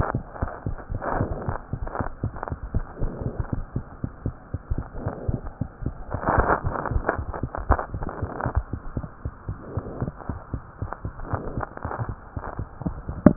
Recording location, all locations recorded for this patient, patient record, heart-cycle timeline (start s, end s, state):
mitral valve (MV)
aortic valve (AV)+pulmonary valve (PV)+tricuspid valve (TV)+mitral valve (MV)
#Age: Child
#Sex: Female
#Height: 86.0 cm
#Weight: 11.7 kg
#Pregnancy status: False
#Murmur: Absent
#Murmur locations: nan
#Most audible location: nan
#Systolic murmur timing: nan
#Systolic murmur shape: nan
#Systolic murmur grading: nan
#Systolic murmur pitch: nan
#Systolic murmur quality: nan
#Diastolic murmur timing: nan
#Diastolic murmur shape: nan
#Diastolic murmur grading: nan
#Diastolic murmur pitch: nan
#Diastolic murmur quality: nan
#Outcome: Abnormal
#Campaign: 2015 screening campaign
0.00	9.21	unannotated
9.21	9.32	S1
9.32	9.46	systole
9.46	9.58	S2
9.58	9.74	diastole
9.74	9.84	S1
9.84	10.00	systole
10.00	10.14	S2
10.14	10.30	diastole
10.30	10.40	S1
10.40	10.52	systole
10.52	10.62	S2
10.62	10.80	diastole
10.80	10.90	S1
10.90	11.04	systole
11.04	11.13	S2
11.13	11.30	diastole
11.30	11.44	S1
11.44	11.56	systole
11.56	11.66	S2
11.66	11.84	diastole
11.84	11.92	S1
11.92	12.06	systole
12.06	12.16	S2
12.16	12.34	diastole
12.34	12.44	S1
12.44	12.58	systole
12.58	12.68	S2
12.68	12.82	diastole
12.82	12.94	S1
12.94	13.36	unannotated